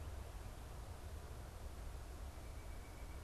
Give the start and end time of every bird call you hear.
[2.24, 3.23] White-breasted Nuthatch (Sitta carolinensis)

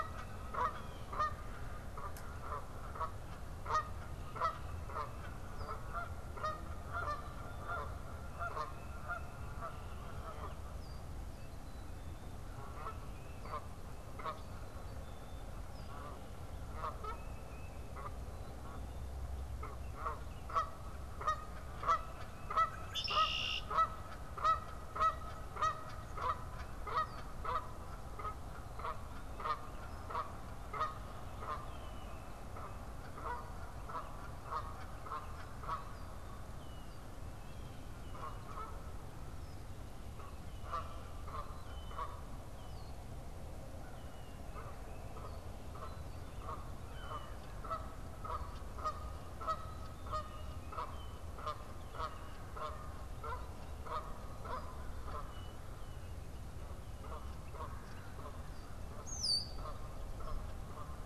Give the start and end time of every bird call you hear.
[0.00, 1.44] Blue Jay (Cyanocitta cristata)
[0.00, 61.03] Canada Goose (Branta canadensis)
[6.93, 7.93] Black-capped Chickadee (Poecile atricapillus)
[12.54, 23.23] Tufted Titmouse (Baeolophus bicolor)
[22.43, 23.84] Red-winged Blackbird (Agelaius phoeniceus)
[46.73, 47.53] unidentified bird
[49.53, 50.73] Black-capped Chickadee (Poecile atricapillus)
[58.84, 59.84] Red-winged Blackbird (Agelaius phoeniceus)

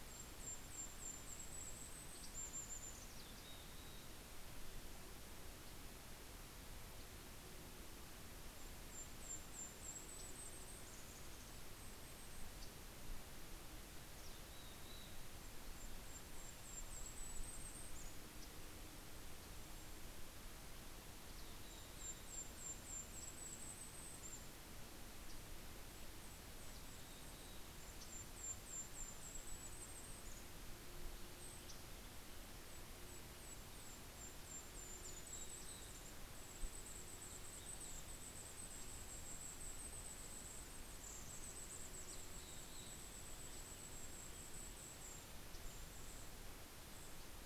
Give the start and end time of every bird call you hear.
[0.00, 3.40] Golden-crowned Kinglet (Regulus satrapa)
[1.90, 2.70] Yellow-rumped Warbler (Setophaga coronata)
[3.10, 4.40] Mountain Chickadee (Poecile gambeli)
[7.70, 12.70] Golden-crowned Kinglet (Regulus satrapa)
[9.70, 11.00] Yellow-rumped Warbler (Setophaga coronata)
[12.20, 13.30] Yellow-rumped Warbler (Setophaga coronata)
[13.90, 15.40] Mountain Chickadee (Poecile gambeli)
[15.30, 18.70] Golden-crowned Kinglet (Regulus satrapa)
[17.90, 19.10] Yellow-rumped Warbler (Setophaga coronata)
[20.60, 25.10] Golden-crowned Kinglet (Regulus satrapa)
[21.20, 22.90] Mountain Chickadee (Poecile gambeli)
[22.80, 23.80] Yellow-rumped Warbler (Setophaga coronata)
[24.80, 26.00] Yellow-rumped Warbler (Setophaga coronata)
[25.70, 30.60] Golden-crowned Kinglet (Regulus satrapa)
[26.50, 27.80] Mountain Chickadee (Poecile gambeli)
[31.10, 31.90] Golden-crowned Kinglet (Regulus satrapa)
[31.50, 32.20] Yellow-rumped Warbler (Setophaga coronata)
[32.60, 47.46] Golden-crowned Kinglet (Regulus satrapa)
[34.60, 36.50] Mountain Chickadee (Poecile gambeli)
[37.50, 39.30] Mountain Chickadee (Poecile gambeli)
[41.70, 44.10] Mountain Chickadee (Poecile gambeli)
[41.80, 42.70] Yellow-rumped Warbler (Setophaga coronata)
[44.20, 47.46] Red-breasted Nuthatch (Sitta canadensis)
[45.50, 46.20] Yellow-rumped Warbler (Setophaga coronata)

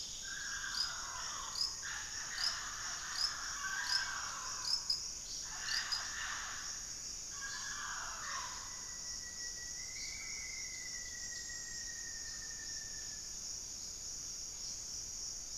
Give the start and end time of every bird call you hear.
[0.00, 8.90] Hauxwell's Thrush (Turdus hauxwelli)
[0.00, 9.00] Mealy Parrot (Amazona farinosa)
[0.20, 2.40] Black-faced Antthrush (Formicarius analis)
[8.40, 13.60] Rufous-fronted Antthrush (Formicarius rufifrons)
[9.90, 15.58] unidentified bird

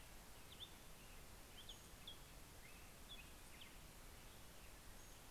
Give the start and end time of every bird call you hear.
[0.00, 5.31] Black-headed Grosbeak (Pheucticus melanocephalus)
[0.82, 2.32] Pacific-slope Flycatcher (Empidonax difficilis)
[4.12, 5.31] Pacific-slope Flycatcher (Empidonax difficilis)

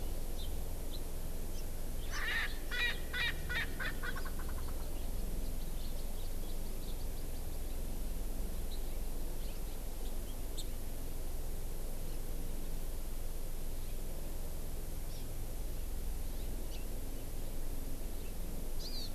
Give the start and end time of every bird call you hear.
[0.38, 0.48] Hawaii Amakihi (Chlorodrepanis virens)
[2.08, 4.98] Erckel's Francolin (Pternistis erckelii)
[15.08, 15.28] Hawaii Amakihi (Chlorodrepanis virens)
[18.78, 19.08] Hawaii Amakihi (Chlorodrepanis virens)

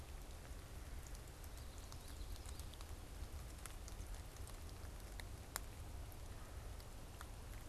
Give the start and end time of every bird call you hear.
[0.99, 3.29] Common Yellowthroat (Geothlypis trichas)

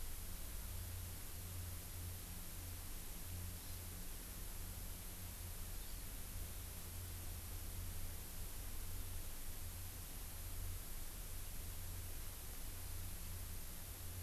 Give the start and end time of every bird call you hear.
[3.56, 3.77] Hawaii Amakihi (Chlorodrepanis virens)
[5.76, 6.07] Hawaii Amakihi (Chlorodrepanis virens)

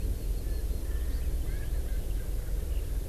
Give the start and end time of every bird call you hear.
[0.40, 2.30] Erckel's Francolin (Pternistis erckelii)

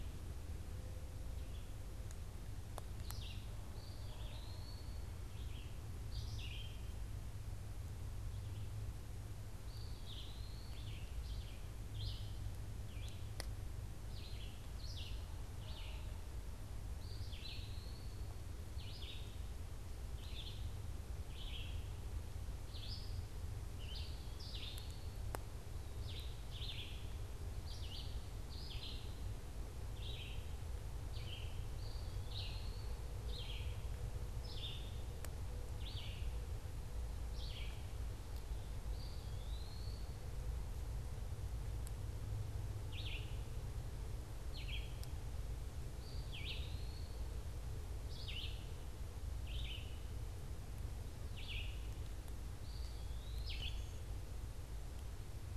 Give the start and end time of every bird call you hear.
[2.90, 3.50] Red-eyed Vireo (Vireo olivaceus)
[3.70, 5.10] Eastern Wood-Pewee (Contopus virens)
[5.30, 7.10] Red-eyed Vireo (Vireo olivaceus)
[9.50, 11.00] Eastern Wood-Pewee (Contopus virens)
[10.50, 38.30] Red-eyed Vireo (Vireo olivaceus)
[16.90, 18.20] Eastern Wood-Pewee (Contopus virens)
[23.70, 25.30] Eastern Wood-Pewee (Contopus virens)
[31.60, 33.10] Eastern Wood-Pewee (Contopus virens)
[38.80, 40.20] Eastern Wood-Pewee (Contopus virens)
[42.70, 54.10] Red-eyed Vireo (Vireo olivaceus)
[45.70, 47.20] Eastern Wood-Pewee (Contopus virens)
[52.40, 53.80] Eastern Wood-Pewee (Contopus virens)

